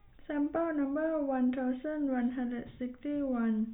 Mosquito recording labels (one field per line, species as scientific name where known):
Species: no mosquito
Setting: cup